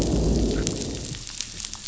{"label": "biophony, growl", "recorder": "SoundTrap 500"}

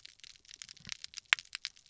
{"label": "biophony", "recorder": "SoundTrap 300"}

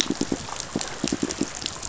{"label": "biophony, pulse", "recorder": "SoundTrap 500"}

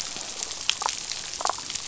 {"label": "biophony, damselfish", "recorder": "SoundTrap 500"}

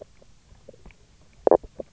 {"label": "biophony, knock croak", "recorder": "SoundTrap 300"}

